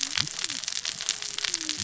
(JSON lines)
{"label": "biophony, cascading saw", "recorder": "SoundTrap 600 or HydroMoth"}